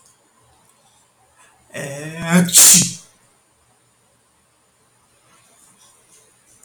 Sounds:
Sneeze